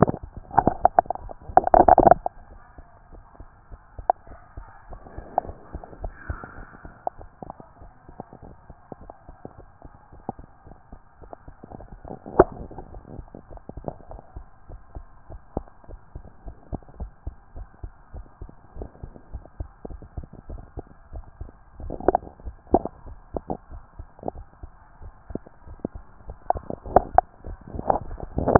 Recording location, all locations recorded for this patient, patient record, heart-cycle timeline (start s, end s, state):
tricuspid valve (TV)
aortic valve (AV)+pulmonary valve (PV)+tricuspid valve (TV)+mitral valve (MV)
#Age: Child
#Sex: Male
#Height: 142.0 cm
#Weight: 40.0 kg
#Pregnancy status: False
#Murmur: Absent
#Murmur locations: nan
#Most audible location: nan
#Systolic murmur timing: nan
#Systolic murmur shape: nan
#Systolic murmur grading: nan
#Systolic murmur pitch: nan
#Systolic murmur quality: nan
#Diastolic murmur timing: nan
#Diastolic murmur shape: nan
#Diastolic murmur grading: nan
#Diastolic murmur pitch: nan
#Diastolic murmur quality: nan
#Outcome: Normal
#Campaign: 2014 screening campaign
0.00	13.26	unannotated
13.26	13.52	diastole
13.52	13.62	S1
13.62	13.84	systole
13.84	13.90	S2
13.90	14.10	diastole
14.10	14.22	S1
14.22	14.36	systole
14.36	14.46	S2
14.46	14.70	diastole
14.70	14.80	S1
14.80	14.96	systole
14.96	15.04	S2
15.04	15.30	diastole
15.30	15.40	S1
15.40	15.56	systole
15.56	15.66	S2
15.66	15.90	diastole
15.90	16.00	S1
16.00	16.14	systole
16.14	16.24	S2
16.24	16.46	diastole
16.46	16.56	S1
16.56	16.72	systole
16.72	16.80	S2
16.80	17.00	diastole
17.00	17.10	S1
17.10	17.26	systole
17.26	17.34	S2
17.34	17.56	diastole
17.56	17.68	S1
17.68	17.82	systole
17.82	17.92	S2
17.92	18.14	diastole
18.14	18.26	S1
18.26	18.40	systole
18.40	18.50	S2
18.50	18.78	diastole
18.78	18.90	S1
18.90	19.02	systole
19.02	19.12	S2
19.12	19.32	diastole
19.32	19.44	S1
19.44	19.58	systole
19.58	19.68	S2
19.68	19.90	diastole
19.90	20.02	S1
20.02	20.16	systole
20.16	20.26	S2
20.26	20.50	diastole
20.50	20.62	S1
20.62	20.76	systole
20.76	20.84	S2
20.84	21.12	diastole
21.12	21.24	S1
21.24	21.40	systole
21.40	21.50	S2
21.50	21.67	diastole
21.67	28.59	unannotated